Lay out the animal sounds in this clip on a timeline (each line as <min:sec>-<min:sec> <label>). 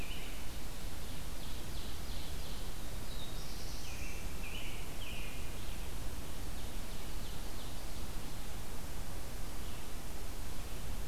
0:00.3-0:02.9 Ovenbird (Seiurus aurocapilla)
0:02.5-0:04.5 Black-throated Blue Warbler (Setophaga caerulescens)
0:03.4-0:06.1 American Robin (Turdus migratorius)
0:06.2-0:08.4 Ovenbird (Seiurus aurocapilla)